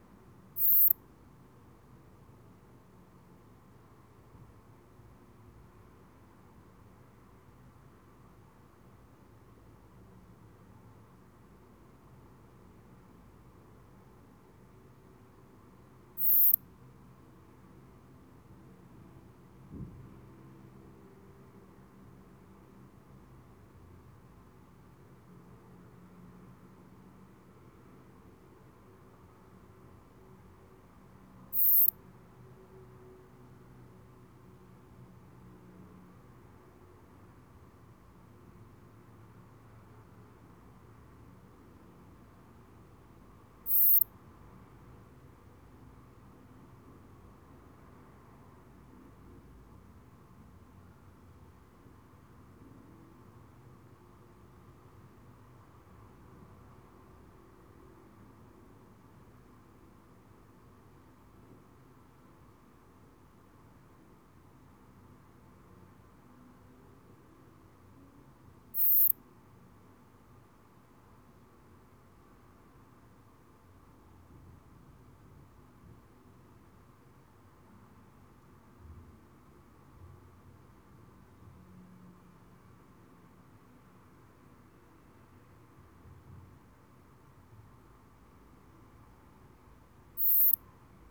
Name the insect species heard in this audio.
Poecilimon sanctipauli